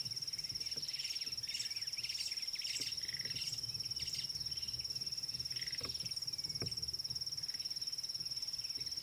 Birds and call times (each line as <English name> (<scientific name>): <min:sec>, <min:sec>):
White-browed Sparrow-Weaver (Plocepasser mahali): 0:02.2